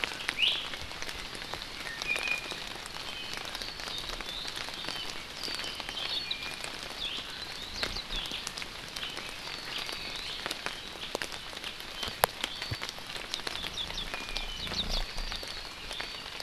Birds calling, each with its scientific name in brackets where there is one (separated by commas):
Iiwi (Drepanis coccinea)